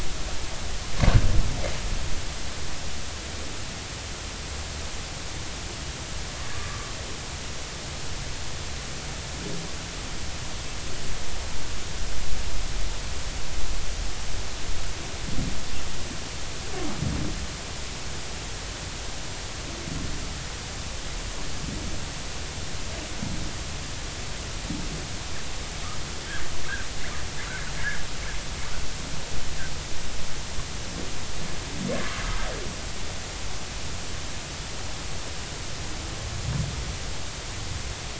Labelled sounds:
6.5	6.9	humpback whale, 1.1 to 1.2 kHz

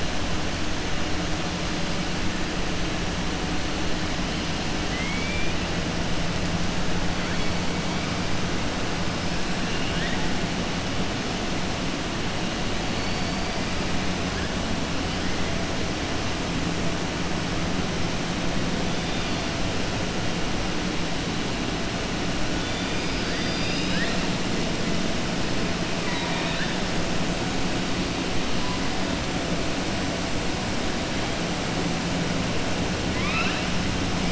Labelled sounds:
4.8	5.5	killer whale, southern resident, 2.0 to 3.2 kHz
9.6	10.2	killer whale, southern resident, 1.6 to 3.8 kHz
12.9	13.6	killer whale, southern resident, 4.4 to 4.8 kHz
22.9	24.2	killer whale, southern resident, 1.5 to 6.0 kHz
25.9	26.7	killer whale, southern resident, 0.92 to 4.4 kHz
33.1	33.7	killer whale, southern resident, 1.0 to 5.5 kHz

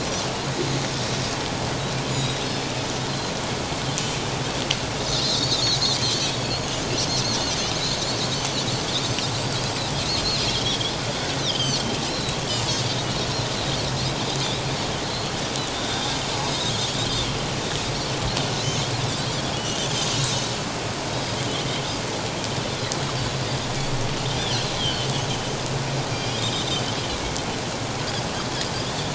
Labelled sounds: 2.1	2.5	Pacific white-sided dolphin, 3.6 to 4.0 kHz
3.1	3.3	Pacific white-sided dolphin, 4.0 to 4.2 kHz
5.2	5.6	Pacific white-sided dolphin, 3.4 to 4.6 kHz
6.0	6.3	Pacific white-sided dolphin, 3.0 to 3.2 kHz
10.5	12.4	Pacific white-sided dolphin, 2.9 to 4.9 kHz
15.1	15.4	Pacific white-sided dolphin, 3.9 to 4.4 kHz
15.7	16.2	Pacific white-sided dolphin, 3.2 to 3.8 kHz
18.5	18.9	Pacific white-sided dolphin, 5.1 to 6.5 kHz
19.6	20.4	Pacific white-sided dolphin, 2.8 to 6.7 kHz
21.1	21.4	Pacific white-sided dolphin, 4.8 to 5.2 kHz
24.4	25.1	Pacific white-sided dolphin, 2.7 to 4.5 kHz
26.1	26.8	Pacific white-sided dolphin, 2.3 to 5.1 kHz
27.1	27.4	Pacific white-sided dolphin, 2.1 to 2.4 kHz

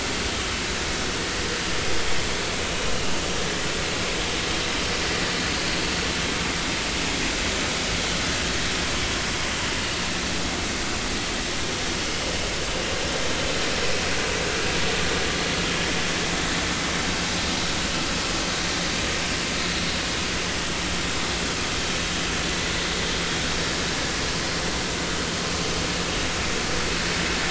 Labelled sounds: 21.0	21.3	vessel noise, 3.7 to 3.8 kHz

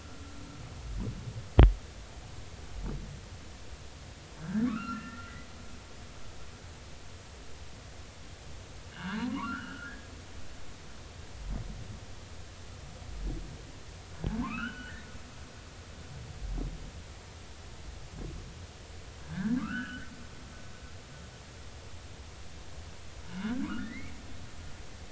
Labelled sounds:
4.4	5.5	humpback whale, 1.1 to 2.9 kHz
8.9	10.1	humpback whale, 0.86 to 3.0 kHz
14.4	15.1	humpback whale, 0.86 to 3.1 kHz
19.2	20.1	humpback whale, 1.1 to 3.1 kHz
23.2	24.1	humpback whale, 0.93 to 3.0 kHz

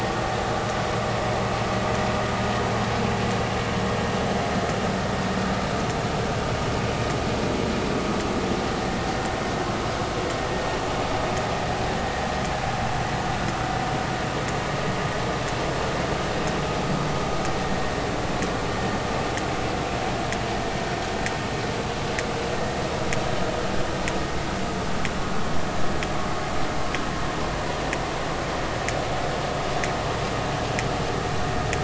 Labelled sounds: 8.8	9.1	vessel noise, 1.7 to 1.9 kHz

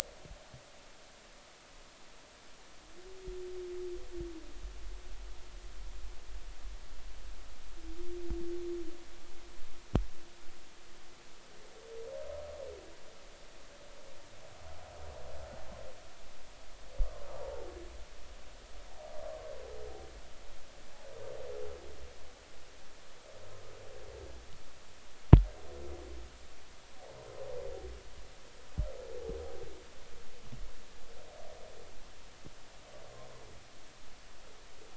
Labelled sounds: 17.4	17.7	humpback whale, 0.80 to 0.99 kHz

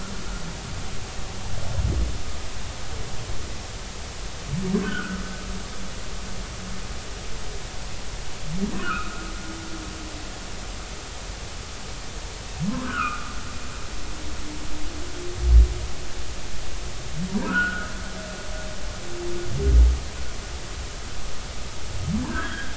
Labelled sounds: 4.8	5.2	humpback whale, 1.2 to 1.6 kHz
8.7	9.2	humpback whale, 1.1 to 2.7 kHz
12.8	13.3	humpback whale, 0.99 to 3.1 kHz
17.3	17.9	humpback whale, 0.90 to 1.8 kHz
22.2	22.7	humpback whale, 1.3 to 3.4 kHz

